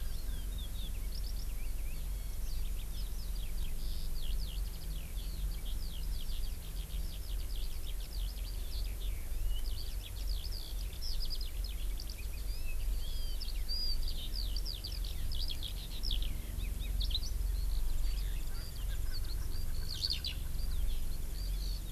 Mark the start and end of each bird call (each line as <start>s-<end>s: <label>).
0.0s-21.9s: Eurasian Skylark (Alauda arvensis)
18.5s-20.5s: Erckel's Francolin (Pternistis erckelii)